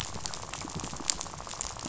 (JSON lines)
{"label": "biophony, rattle", "recorder": "SoundTrap 500"}